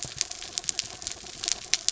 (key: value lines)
label: anthrophony, mechanical
recorder: SoundTrap 300